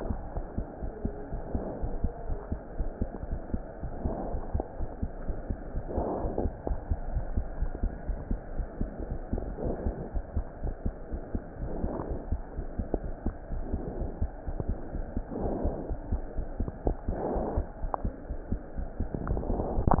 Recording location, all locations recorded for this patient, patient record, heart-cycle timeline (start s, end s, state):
aortic valve (AV)
aortic valve (AV)+pulmonary valve (PV)+tricuspid valve (TV)+mitral valve (MV)
#Age: Adolescent
#Sex: Female
#Height: 119.0 cm
#Weight: 19.6 kg
#Pregnancy status: False
#Murmur: Absent
#Murmur locations: nan
#Most audible location: nan
#Systolic murmur timing: nan
#Systolic murmur shape: nan
#Systolic murmur grading: nan
#Systolic murmur pitch: nan
#Systolic murmur quality: nan
#Diastolic murmur timing: nan
#Diastolic murmur shape: nan
#Diastolic murmur grading: nan
#Diastolic murmur pitch: nan
#Diastolic murmur quality: nan
#Outcome: Normal
#Campaign: 2015 screening campaign
0.00	0.18	S2
0.18	0.34	diastole
0.34	0.46	S1
0.46	0.56	systole
0.56	0.66	S2
0.66	0.82	diastole
0.82	0.90	S1
0.90	1.00	systole
1.00	1.14	S2
1.14	1.30	diastole
1.30	1.40	S1
1.40	1.50	systole
1.50	1.62	S2
1.62	1.80	diastole
1.80	1.91	S1
1.91	2.00	systole
2.00	2.12	S2
2.12	2.28	diastole
2.28	2.38	S1
2.38	2.48	systole
2.48	2.58	S2
2.58	2.76	diastole
2.76	2.90	S1
2.90	2.98	systole
2.98	3.10	S2
3.10	3.30	diastole
3.30	3.42	S1
3.42	3.50	systole
3.50	3.64	S2
3.64	3.82	diastole
3.82	3.90	S1
3.90	4.02	systole
4.02	4.14	S2
4.14	4.30	diastole
4.30	4.44	S1
4.44	4.52	systole
4.52	4.64	S2
4.64	4.80	diastole
4.80	4.90	S1
4.90	5.02	systole
5.02	5.10	S2
5.10	5.26	diastole
5.26	5.36	S1
5.36	5.46	systole
5.46	5.56	S2
5.56	5.74	diastole
5.74	5.84	S1
5.84	5.94	systole
5.94	6.06	S2
6.06	6.20	diastole
6.20	6.29	S1
6.29	6.38	systole
6.38	6.52	S2
6.52	6.68	diastole
6.68	6.78	S1
6.78	6.86	systole
6.86	7.00	S2
7.00	7.12	diastole
7.12	7.26	S1
7.26	7.34	systole
7.34	7.44	S2
7.44	7.60	diastole
7.60	7.72	S1
7.72	7.80	systole
7.80	7.92	S2
7.92	8.06	diastole
8.06	8.20	S1
8.20	8.28	systole
8.28	8.40	S2
8.40	8.56	diastole
8.56	8.66	S1
8.66	8.80	systole
8.80	8.90	S2
8.90	9.10	diastole
9.10	9.22	S1
9.22	9.32	systole
9.32	9.46	S2
9.46	9.62	diastole
9.62	9.74	S1
9.74	9.82	systole
9.82	9.96	S2
9.96	10.14	diastole
10.14	10.22	S1
10.22	10.36	systole
10.36	10.46	S2
10.46	10.62	diastole
10.62	10.74	S1
10.74	10.82	systole
10.82	10.92	S2
10.92	11.10	diastole
11.10	11.20	S1
11.20	11.32	systole
11.32	11.42	S2
11.42	11.60	diastole
11.60	11.70	S1
11.70	11.80	systole
11.80	11.92	S2
11.92	12.08	diastole
12.08	12.18	S1
12.18	12.28	systole
12.28	12.40	S2
12.40	12.56	diastole
12.56	12.66	S1
12.66	12.78	systole
12.78	12.86	S2
12.86	13.02	diastole
13.02	13.14	S1
13.14	13.24	systole
13.24	13.36	S2
13.36	13.52	diastole
13.52	13.62	S1
13.62	13.70	systole
13.70	13.84	S2
13.84	13.98	diastole
13.98	14.12	S1
14.12	14.20	systole
14.20	14.32	S2
14.32	14.48	diastole
14.48	14.58	S1
14.58	14.66	systole
14.66	14.78	S2
14.78	14.96	diastole
14.96	15.06	S1
15.06	15.14	systole
15.14	15.24	S2
15.24	15.40	diastole
15.40	15.54	S1
15.54	15.62	systole
15.62	15.76	S2
15.76	15.88	diastole
15.88	16.00	S1
16.00	16.10	systole
16.10	16.22	S2
16.22	16.36	diastole
16.36	16.46	S1
16.46	16.56	systole
16.56	16.72	S2
16.72	16.88	diastole
16.88	16.98	S1
16.98	17.06	systole
17.06	17.18	S2
17.18	17.30	diastole
17.30	17.44	S1
17.44	17.54	systole
17.54	17.68	S2
17.68	17.82	diastole
17.82	17.92	S1
17.92	18.02	systole
18.02	18.14	S2
18.14	18.28	diastole
18.28	18.38	S1
18.38	18.50	systole
18.50	18.60	S2
18.60	18.76	diastole